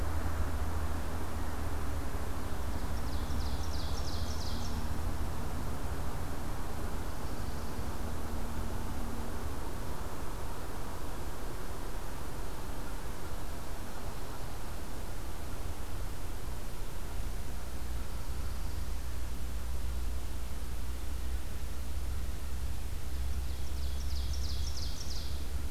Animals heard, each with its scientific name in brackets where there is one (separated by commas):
Ovenbird (Seiurus aurocapilla)